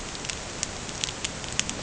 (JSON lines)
{"label": "ambient", "recorder": "HydroMoth"}